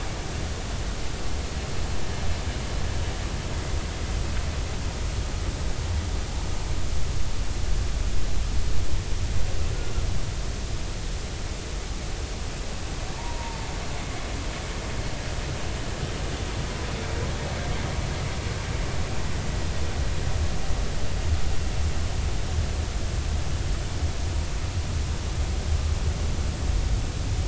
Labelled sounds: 13.1	13.7	humpback whale, 0.86 to 1.0 kHz

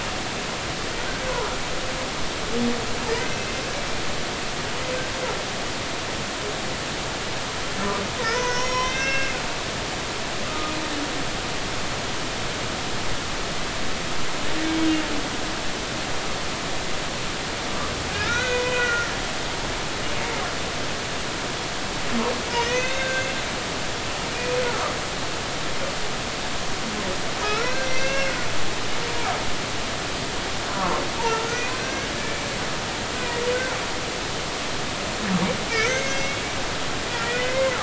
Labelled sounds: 8.2	9.4	humpback whale, 0.90 to 6.0 kHz
10.4	10.7	humpback whale, 1.2 to 1.4 kHz
18.1	19.2	humpback whale, 1.3 to 2.6 kHz
22.5	23.4	humpback whale, 1.5 to 3.8 kHz
24.6	24.9	humpback whale, 1.1 to 1.5 kHz
27.4	28.3	humpback whale, 1.2 to 6.0 kHz
31.2	32.4	humpback whale, 0.86 to 2.6 kHz
35.8	36.4	humpback whale, 1.9 to 6.6 kHz
37.2	37.7	humpback whale, 1.9 to 2.2 kHz

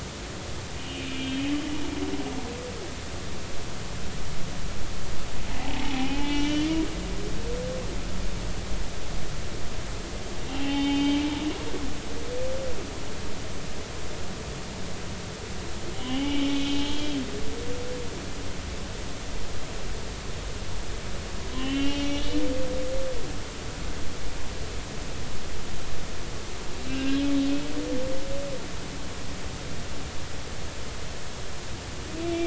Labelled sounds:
0.8	1.4	humpback whale, 2.3 to 3.2 kHz
5.6	6.7	humpback whale, 0.80 to 3.6 kHz
10.5	11.3	humpback whale, 0.80 to 3.2 kHz
15.9	16.5	humpback whale, 0.80 to 3.4 kHz
16.8	17.2	humpback whale, 3.1 to 3.3 kHz
21.5	22.4	humpback whale, 1.8 to 3.5 kHz
26.9	27.2	humpback whale, 1.5 to 2.8 kHz

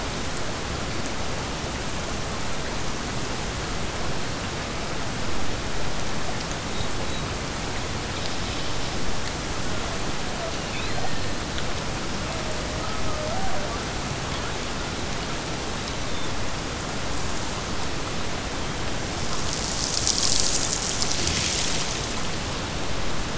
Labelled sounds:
10.4	11.5	killer whale, Bigg's (transient), Gulf of Alaska transient, 1.6 to 3.0 kHz

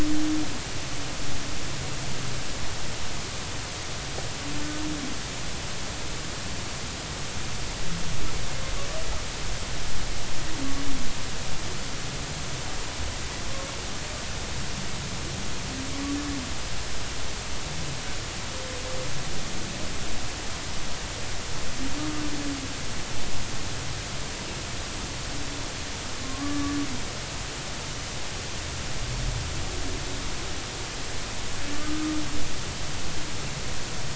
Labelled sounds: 26.2	26.8	humpback whale, 1.0 to 1.2 kHz
31.7	32.1	humpback whale, 1.1 to 1.3 kHz

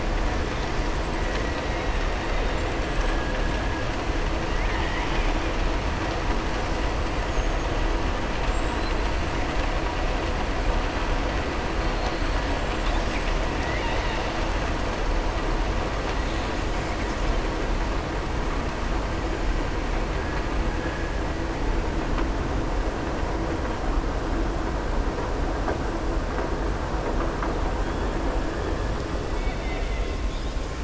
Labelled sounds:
29.3	30.2	killer whale, southern resident, 1.9 to 4.5 kHz

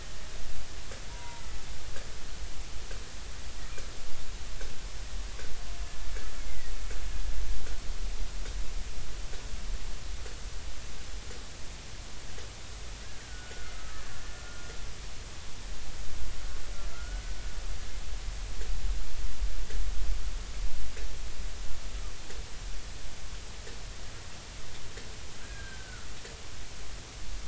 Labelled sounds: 1.1	1.6	killer whale, Bigg's (transient), 0.90 to 2.1 kHz
6.4	6.7	killer whale, Bigg's (transient), 1.8 to 2.3 kHz
13.2	14.1	killer whale, Bigg's (transient), 1.2 to 1.7 kHz
16.9	17.4	killer whale, Bigg's (transient), 1.3 to 1.5 kHz
25.4	26.1	killer whale, Bigg's (transient), 1.3 to 1.7 kHz

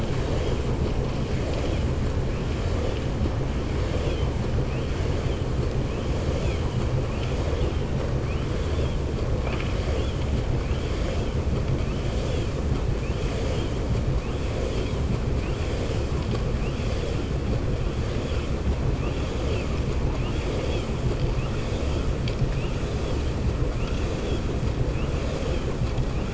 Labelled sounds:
13.2	13.7	vessel noise, 2.2 to 3.6 kHz
20.0	20.9	vessel noise, 0.67 to 5.9 kHz

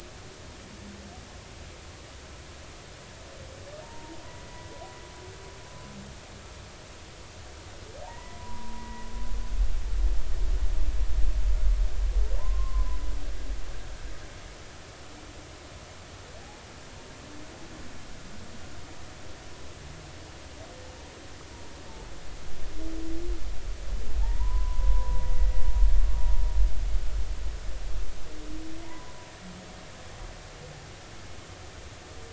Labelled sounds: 3.8	4.5	humpback whale, 0.86 to 1.0 kHz
8.0	9.1	humpback whale, 0.80 to 2.0 kHz
12.4	13.0	humpback whale, 0.86 to 1.1 kHz
24.2	25.3	humpback whale, 0.80 to 1.1 kHz
28.8	29.1	humpback whale, 0.90 to 1.1 kHz

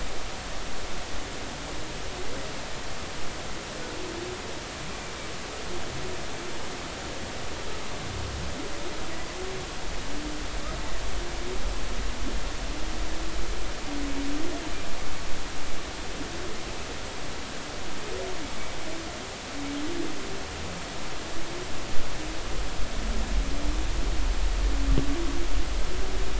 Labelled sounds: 4.9	5.1	humpback whale, 2.3 to 2.5 kHz

